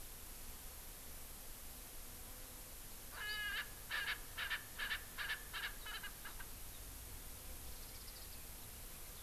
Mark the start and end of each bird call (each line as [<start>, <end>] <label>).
[3.02, 6.52] Erckel's Francolin (Pternistis erckelii)
[7.62, 8.42] Warbling White-eye (Zosterops japonicus)